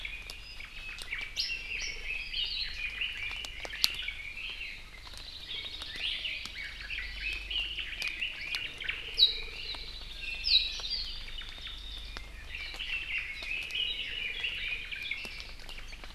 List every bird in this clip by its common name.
Omao, Red-billed Leiothrix, Hawaii Akepa, Hawaii Creeper, Hawaii Amakihi, Warbling White-eye, Iiwi